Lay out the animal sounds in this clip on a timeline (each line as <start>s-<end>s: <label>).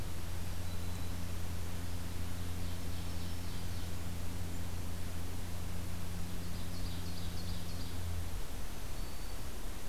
0.3s-1.2s: Black-throated Green Warbler (Setophaga virens)
2.2s-4.0s: Ovenbird (Seiurus aurocapilla)
2.7s-3.9s: Black-throated Green Warbler (Setophaga virens)
6.2s-8.0s: Ovenbird (Seiurus aurocapilla)
8.7s-9.4s: Black-throated Green Warbler (Setophaga virens)